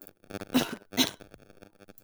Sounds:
Cough